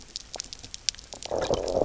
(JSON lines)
{"label": "biophony, low growl", "recorder": "SoundTrap 300"}